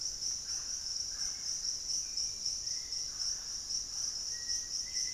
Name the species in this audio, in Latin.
Amazona farinosa, Turdus hauxwelli, Formicarius analis